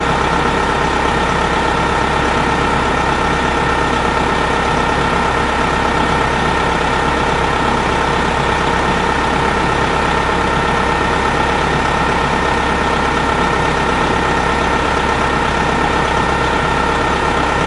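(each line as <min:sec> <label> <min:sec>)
0:00.0 A bus engine is idling. 0:17.7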